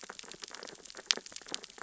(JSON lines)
{"label": "biophony, sea urchins (Echinidae)", "recorder": "SoundTrap 600 or HydroMoth"}